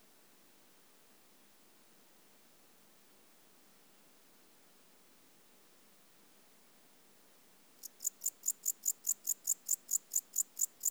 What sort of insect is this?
orthopteran